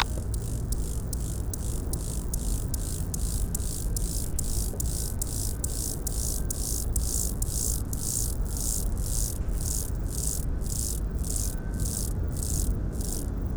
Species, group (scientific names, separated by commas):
Chorthippus mollis, Orthoptera